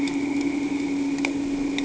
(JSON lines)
{"label": "anthrophony, boat engine", "recorder": "HydroMoth"}